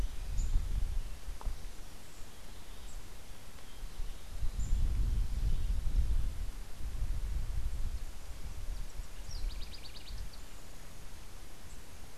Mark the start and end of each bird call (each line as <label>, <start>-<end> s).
House Wren (Troglodytes aedon), 9.1-10.4 s